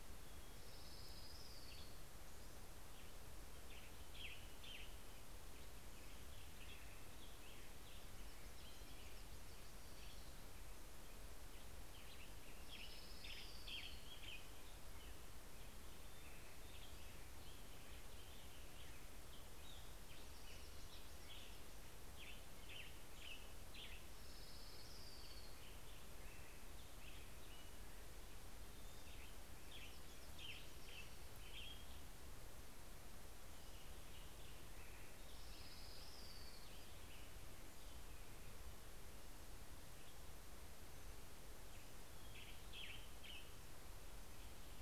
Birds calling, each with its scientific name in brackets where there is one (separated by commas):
American Robin (Turdus migratorius), Western Tanager (Piranga ludoviciana), Hermit Warbler (Setophaga occidentalis), Orange-crowned Warbler (Leiothlypis celata)